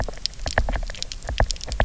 {"label": "biophony, knock", "recorder": "SoundTrap 300"}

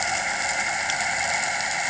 {"label": "anthrophony, boat engine", "recorder": "HydroMoth"}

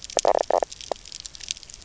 {"label": "biophony, knock croak", "recorder": "SoundTrap 300"}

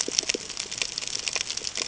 {"label": "ambient", "recorder": "HydroMoth"}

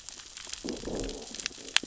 {"label": "biophony, growl", "recorder": "SoundTrap 600 or HydroMoth"}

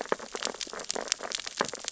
{"label": "biophony, sea urchins (Echinidae)", "recorder": "SoundTrap 600 or HydroMoth"}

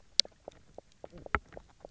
{"label": "biophony, knock croak", "recorder": "SoundTrap 300"}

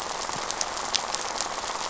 {"label": "biophony, rattle", "recorder": "SoundTrap 500"}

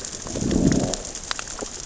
{"label": "biophony, growl", "recorder": "SoundTrap 600 or HydroMoth"}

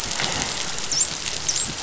{"label": "biophony, dolphin", "recorder": "SoundTrap 500"}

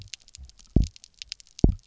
{"label": "biophony, double pulse", "recorder": "SoundTrap 300"}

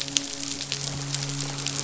{"label": "biophony, midshipman", "recorder": "SoundTrap 500"}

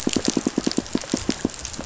{"label": "biophony, pulse", "recorder": "SoundTrap 500"}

